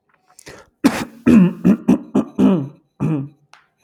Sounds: Throat clearing